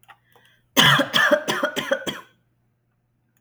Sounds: Cough